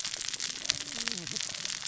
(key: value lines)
label: biophony, cascading saw
recorder: SoundTrap 600 or HydroMoth